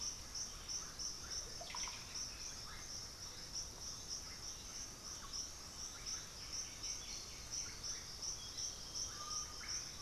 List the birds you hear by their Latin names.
Psarocolius angustifrons, Pachyramphus polychopterus, Dendroma erythroptera, Crypturellus undulatus